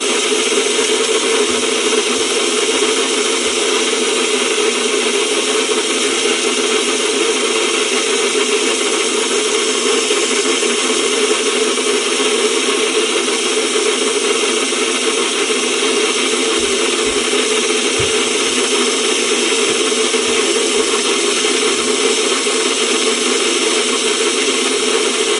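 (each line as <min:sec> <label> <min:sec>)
0:00.0 A vacuum is running. 0:25.3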